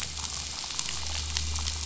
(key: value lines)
label: anthrophony, boat engine
recorder: SoundTrap 500